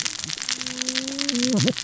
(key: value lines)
label: biophony, cascading saw
recorder: SoundTrap 600 or HydroMoth